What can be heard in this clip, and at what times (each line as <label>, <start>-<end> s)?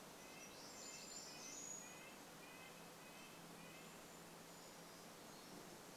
Brown Creeper song, 0-2 s
warbler song, 0-2 s
Red-breasted Nuthatch song, 0-4 s
Brown Creeper call, 4-6 s